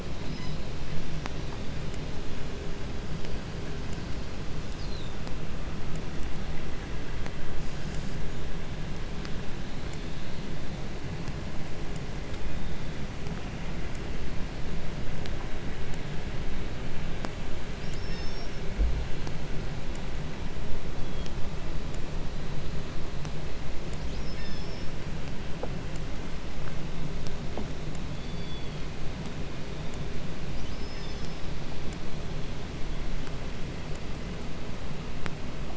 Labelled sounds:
0.0	0.9	killer whale, 0.62 to 6.3 kHz
4.4	5.3	killer whale, 3.0 to 8.0 kHz
12.3	13.2	killer whale, 2.3 to 4.2 kHz
17.6	18.6	killer whale, southern resident, call S36, 1.3 to 6.9 kHz
20.8	21.6	killer whale, southern resident, 2.2 to 5.0 kHz
24.0	25.0	killer whale, southern resident, call S36, 0.25 to 6.0 kHz
27.8	29.0	killer whale, southern resident, 1.4 to 5.9 kHz
30.3	31.7	killer whale, southern resident, call S36, 1.0 to 6.4 kHz

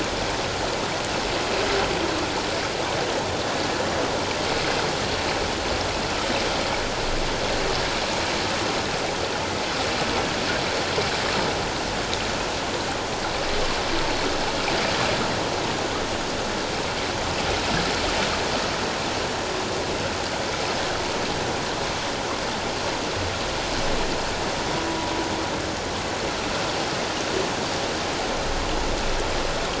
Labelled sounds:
3.2	3.5	humpback whale, 3.4 to 3.6 kHz

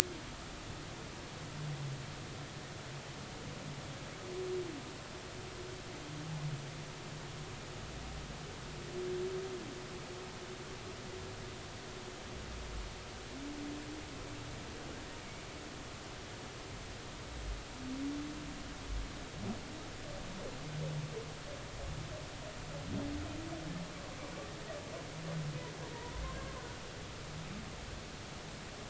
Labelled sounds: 25.9	26.2	humpback whale, 0.90 to 1.1 kHz

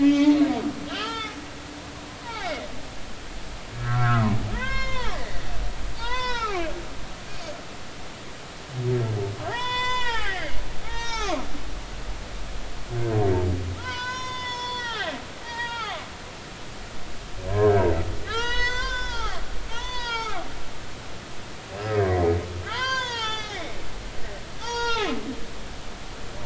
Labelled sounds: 0.0	1.4	humpback whale, 1.1 to 3.7 kHz
2.2	2.5	humpback whale, 0.80 to 1.0 kHz
3.8	5.4	humpback whale, 0.80 to 6.9 kHz
6.0	6.7	humpback whale, 0.80 to 5.6 kHz
9.5	11.4	humpback whale, 0.80 to 7.6 kHz
13.8	15.1	humpback whale, 0.80 to 6.7 kHz
15.5	16.1	humpback whale, 0.99 to 4.8 kHz
16.4	18.0	humpback whale, 0.80 to 2.0 kHz
18.3	20.5	humpback whale, 0.80 to 7.6 kHz
21.9	23.8	humpback whale, 0.80 to 5.8 kHz
24.6	25.2	humpback whale, 0.80 to 6.7 kHz

